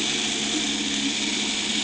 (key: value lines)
label: anthrophony, boat engine
recorder: HydroMoth